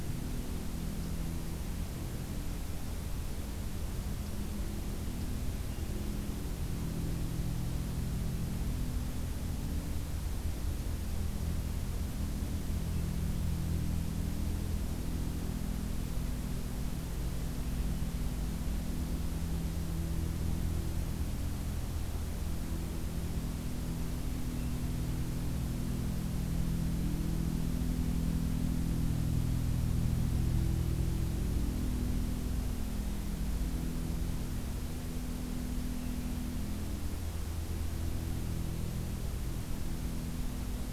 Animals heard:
forest ambience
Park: Acadia National Park